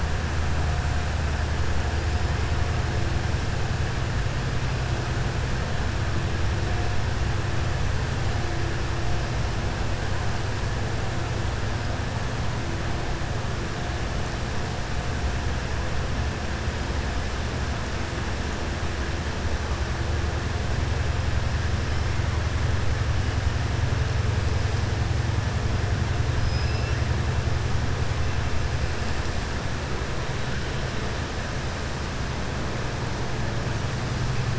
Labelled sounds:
26.4	27.0	killer whale, southern resident, 1.7 to 5.7 kHz

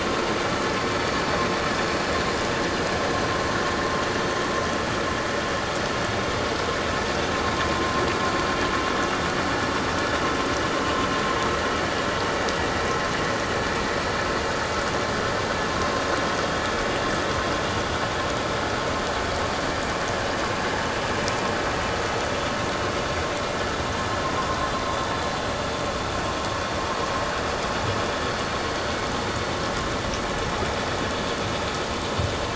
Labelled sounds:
7.7	8.0	vessel noise, 0.94 to 1.1 kHz

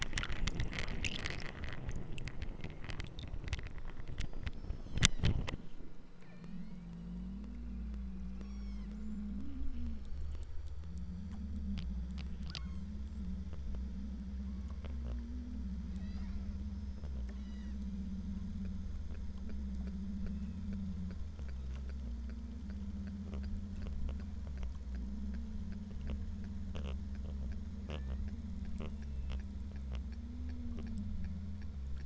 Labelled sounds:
6.1	6.9	killer whale, southern Alaska resident, 1.3 to 7.6 kHz
8.3	9.0	killer whale, southern Alaska resident, 0.64 to 8.0 kHz
12.5	13.0	killer whale, southern Alaska resident, 0.82 to 8.0 kHz
14.4	15.1	killer whale, southern Alaska resident, 0.78 to 2.5 kHz
15.9	17.8	killer whale, southern Alaska resident, 0.59 to 8.0 kHz
20.1	20.7	killer whale, southern Alaska resident, 1.6 to 2.8 kHz
27.9	28.4	killer whale, southern Alaska resident, 1.5 to 2.7 kHz

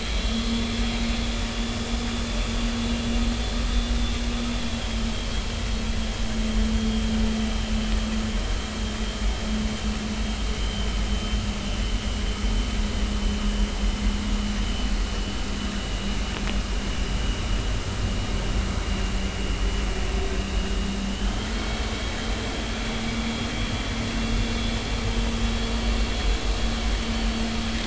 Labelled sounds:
0.2	0.8	vessel noise, 3.3 to 3.5 kHz
10.6	11.4	vessel noise, 2.8 to 3.2 kHz
21.1	21.8	vessel noise, 2.9 to 3.4 kHz
22.4	22.7	vessel noise, 3.2 to 3.5 kHz

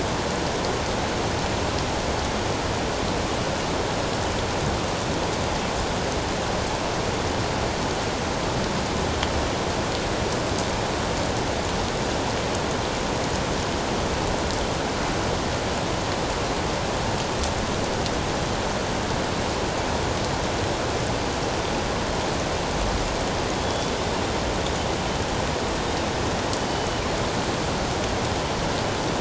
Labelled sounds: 23.6	24.0	killer whale, northern resident, G clan, 3.3 to 3.5 kHz

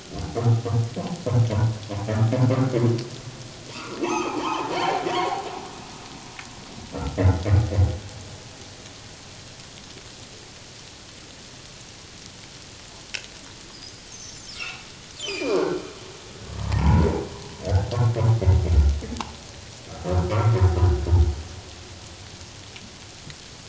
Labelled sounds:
3.7	5.4	humpback whale, 0.78 to 6.5 kHz
7.2	7.4	humpback whale, 1.7 to 2.2 kHz
13.7	14.8	humpback whale, 1.2 to 6.5 kHz
15.3	15.6	humpback whale, 2.3 to 5.1 kHz
16.6	17.2	humpback whale, 0.78 to 1.1 kHz
19.9	20.2	humpback whale, 1.2 to 1.4 kHz

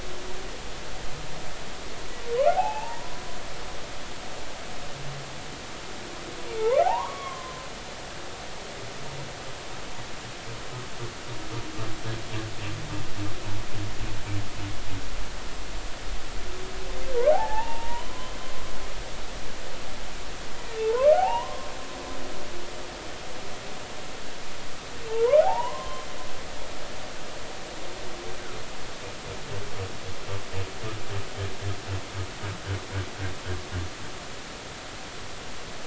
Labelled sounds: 2.5	3.2	humpback whale, 0.80 to 2.8 kHz
6.8	7.6	humpback whale, 0.80 to 3.4 kHz
17.3	18.3	humpback whale, 0.80 to 2.8 kHz
20.8	21.7	humpback whale, 0.80 to 1.2 kHz
25.1	26.1	humpback whale, 0.80 to 3.2 kHz

